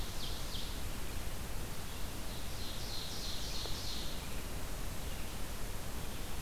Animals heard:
Ovenbird (Seiurus aurocapilla), Red-eyed Vireo (Vireo olivaceus)

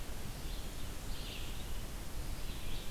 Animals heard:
Red-eyed Vireo (Vireo olivaceus)

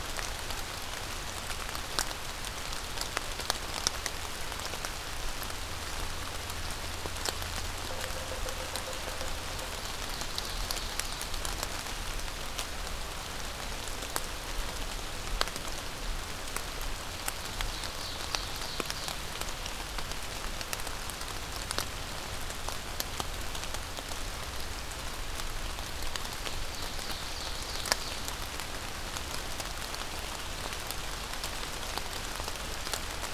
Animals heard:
Yellow-bellied Sapsucker (Sphyrapicus varius), Ovenbird (Seiurus aurocapilla)

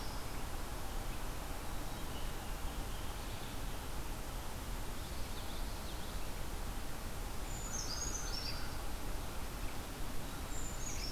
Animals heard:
Brown Creeper (Certhia americana), Common Yellowthroat (Geothlypis trichas), Red-eyed Vireo (Vireo olivaceus)

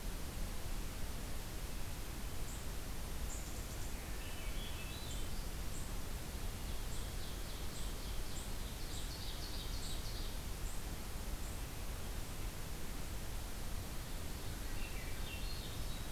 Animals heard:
unidentified call, Ovenbird (Seiurus aurocapilla), Swainson's Thrush (Catharus ustulatus)

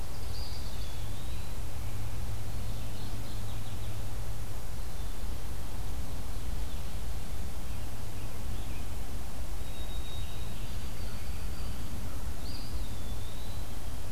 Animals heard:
White-throated Sparrow (Zonotrichia albicollis), Mourning Warbler (Geothlypis philadelphia), Eastern Wood-Pewee (Contopus virens)

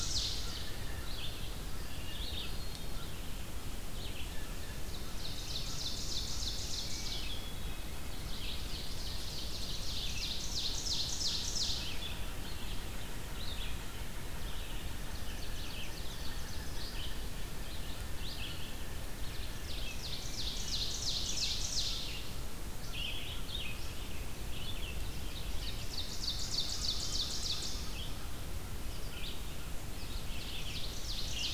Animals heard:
Ovenbird (Seiurus aurocapilla), Pileated Woodpecker (Dryocopus pileatus), American Crow (Corvus brachyrhynchos), Red-eyed Vireo (Vireo olivaceus)

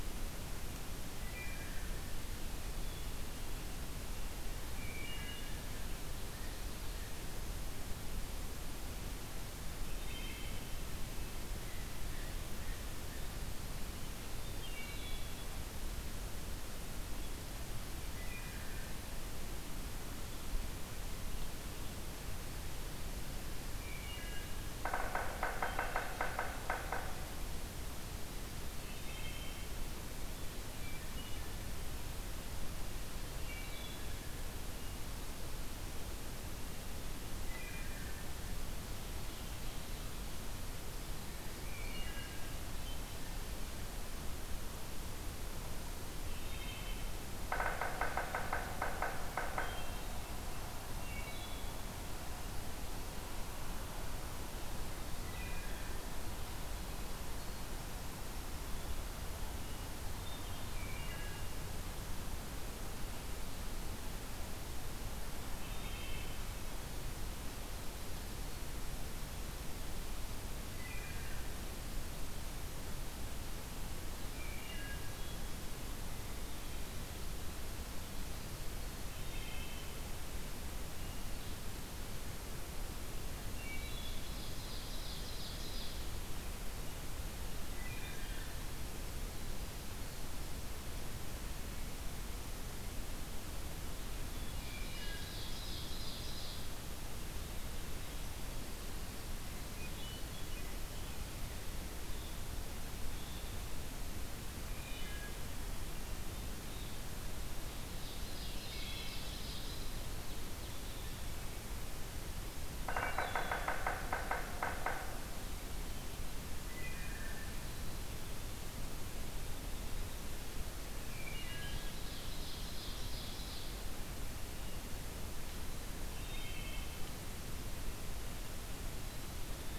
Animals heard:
Blue Jay (Cyanocitta cristata), Hermit Thrush (Catharus guttatus), Wood Thrush (Hylocichla mustelina), Ovenbird (Seiurus aurocapilla), Yellow-bellied Sapsucker (Sphyrapicus varius)

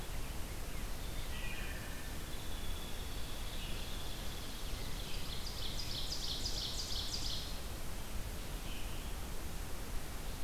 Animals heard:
unidentified call, Wood Thrush (Hylocichla mustelina), Hairy Woodpecker (Dryobates villosus), Ovenbird (Seiurus aurocapilla)

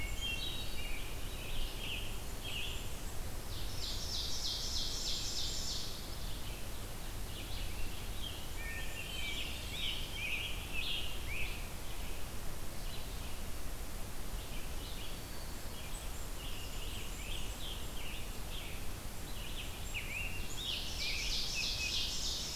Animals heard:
Hermit Thrush (Catharus guttatus), Blackburnian Warbler (Setophaga fusca), Scarlet Tanager (Piranga olivacea), Ovenbird (Seiurus aurocapilla), Red-eyed Vireo (Vireo olivaceus), Black-capped Chickadee (Poecile atricapillus)

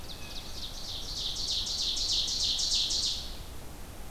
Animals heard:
Blue Jay (Cyanocitta cristata), Ovenbird (Seiurus aurocapilla)

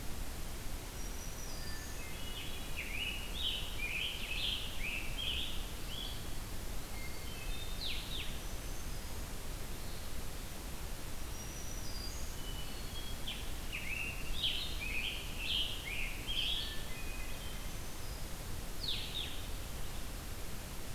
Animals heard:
Scarlet Tanager (Piranga olivacea), Hermit Thrush (Catharus guttatus), Blue-headed Vireo (Vireo solitarius), Black-throated Green Warbler (Setophaga virens)

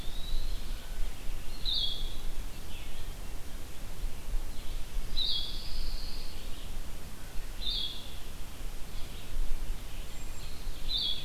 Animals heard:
Cedar Waxwing (Bombycilla cedrorum), Ovenbird (Seiurus aurocapilla), Eastern Wood-Pewee (Contopus virens), Pine Warbler (Setophaga pinus), Blue-headed Vireo (Vireo solitarius)

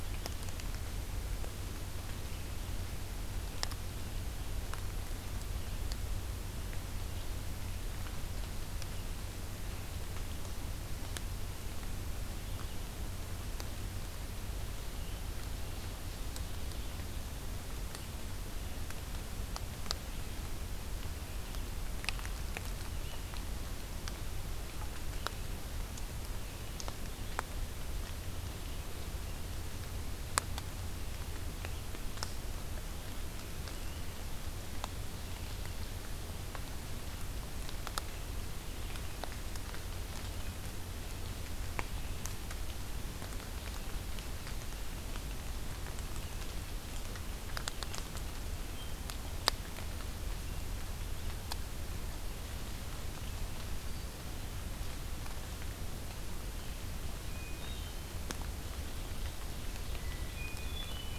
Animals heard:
Hermit Thrush (Catharus guttatus), Ovenbird (Seiurus aurocapilla)

